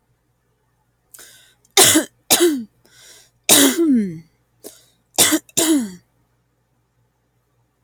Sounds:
Cough